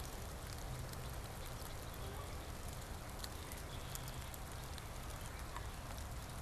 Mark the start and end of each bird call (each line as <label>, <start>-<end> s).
Red-winged Blackbird (Agelaius phoeniceus), 3.6-4.4 s